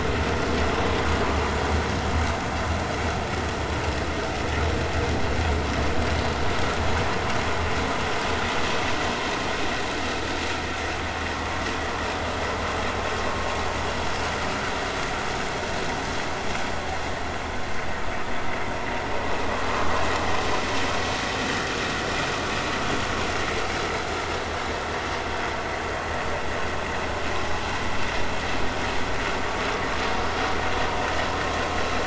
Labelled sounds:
19.7	19.9	vessel noise, 0.99 to 1.3 kHz

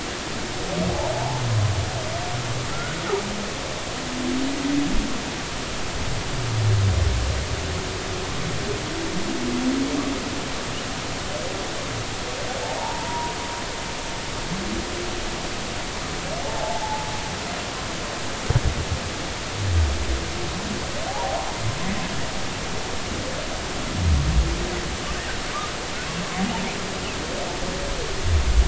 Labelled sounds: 1.1	1.4	humpback whale, 0.80 to 1.1 kHz
2.7	3.0	humpback whale, 1.3 to 1.5 kHz
12.8	13.3	humpback whale, 0.80 to 1.0 kHz
16.4	16.8	humpback whale, 0.80 to 0.93 kHz

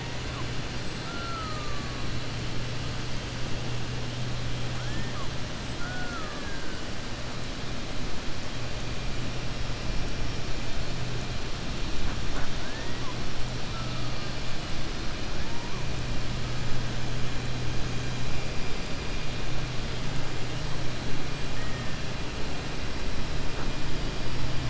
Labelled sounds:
1.0	1.9	killer whale, 0.63 to 1.9 kHz
4.8	5.3	killer whale, 0.87 to 1.9 kHz
5.7	6.6	killer whale, 0.70 to 1.9 kHz

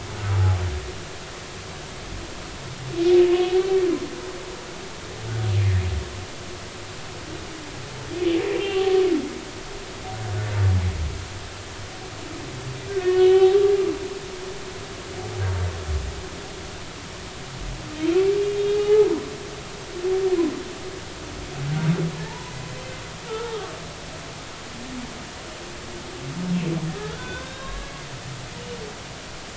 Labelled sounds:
8.6	8.8	humpback whale, 2.7 to 2.9 kHz
13.0	13.6	humpback whale, 0.80 to 3.1 kHz
18.7	19.1	humpback whale, 0.80 to 3.0 kHz
22.3	22.6	humpback whale, 0.83 to 1.1 kHz
23.3	23.5	humpback whale, 1.2 to 1.4 kHz
27.0	27.9	humpback whale, 1.0 to 3.9 kHz

